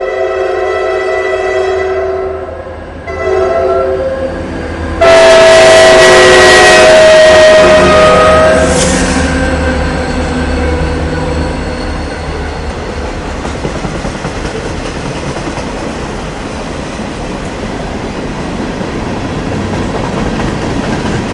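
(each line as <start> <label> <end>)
0.0 A train is passing by on the tracks. 21.3
0.0 A train blows its horn loudly. 9.1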